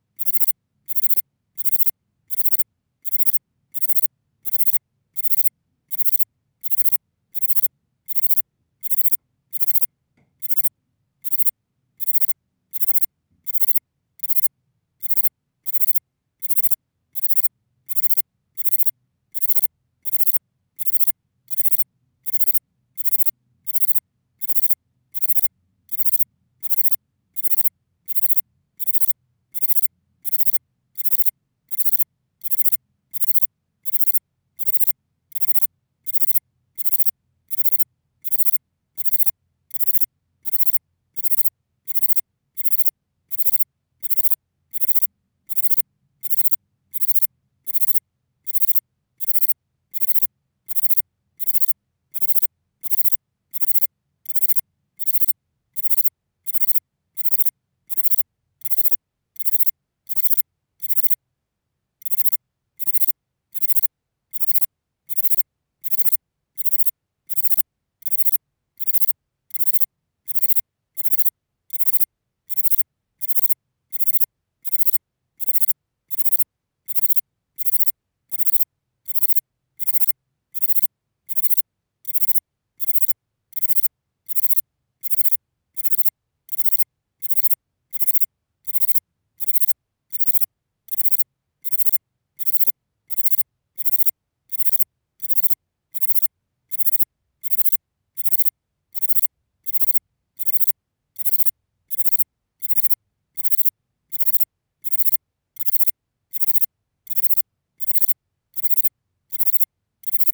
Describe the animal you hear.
Platycleis intermedia, an orthopteran